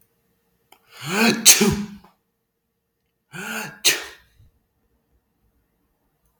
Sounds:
Sneeze